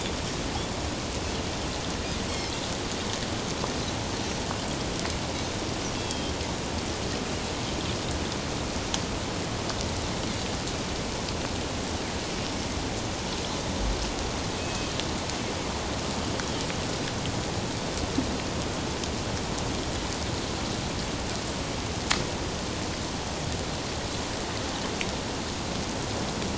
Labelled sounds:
2.3	2.5	Pacific white-sided dolphin, 5.2 to 5.5 kHz
6.0	6.3	Pacific white-sided dolphin, 2.5 to 3.4 kHz
14.6	14.9	Pacific white-sided dolphin, 2.5 to 2.6 kHz

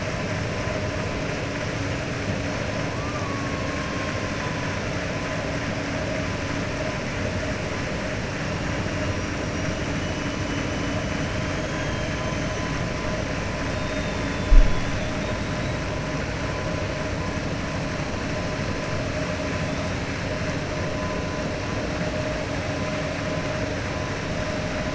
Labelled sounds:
11.6	12.7	killer whale, 2.4 to 6.3 kHz
13.7	14.5	killer whale, 2.7 to 4.4 kHz

